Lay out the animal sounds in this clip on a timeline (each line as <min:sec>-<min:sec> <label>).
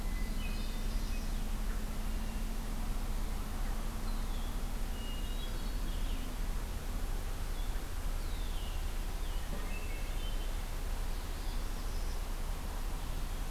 0:00.0-0:01.1 Hermit Thrush (Catharus guttatus)
0:00.2-0:01.4 Northern Parula (Setophaga americana)
0:04.0-0:09.6 Blue-headed Vireo (Vireo solitarius)
0:04.9-0:05.9 Hermit Thrush (Catharus guttatus)
0:08.2-0:08.8 Red-winged Blackbird (Agelaius phoeniceus)
0:09.5-0:10.6 Hermit Thrush (Catharus guttatus)
0:11.0-0:12.1 Northern Parula (Setophaga americana)